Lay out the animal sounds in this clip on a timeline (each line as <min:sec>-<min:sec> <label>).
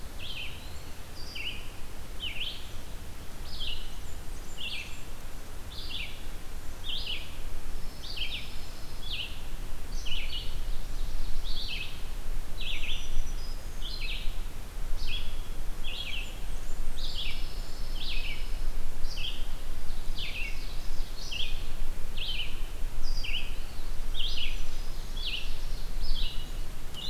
0:00.1-0:12.0 Red-eyed Vireo (Vireo olivaceus)
0:00.3-0:01.1 Eastern Wood-Pewee (Contopus virens)
0:03.8-0:05.2 Blackburnian Warbler (Setophaga fusca)
0:07.7-0:09.2 Pine Warbler (Setophaga pinus)
0:10.5-0:12.0 Ovenbird (Seiurus aurocapilla)
0:12.5-0:27.1 Red-eyed Vireo (Vireo olivaceus)
0:12.7-0:14.0 Black-throated Green Warbler (Setophaga virens)
0:15.8-0:17.8 Blackburnian Warbler (Setophaga fusca)
0:17.1-0:18.7 Dark-eyed Junco (Junco hyemalis)
0:20.0-0:21.8 Ovenbird (Seiurus aurocapilla)
0:23.5-0:24.0 Eastern Wood-Pewee (Contopus virens)
0:24.1-0:25.1 Black-throated Green Warbler (Setophaga virens)
0:25.3-0:26.0 Ovenbird (Seiurus aurocapilla)